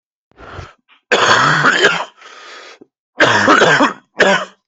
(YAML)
expert_labels:
- quality: good
  cough_type: wet
  dyspnea: true
  wheezing: false
  stridor: false
  choking: false
  congestion: true
  nothing: false
  diagnosis: lower respiratory tract infection
  severity: severe
age: 24
gender: male
respiratory_condition: false
fever_muscle_pain: false
status: COVID-19